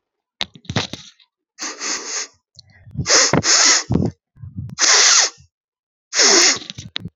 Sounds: Sniff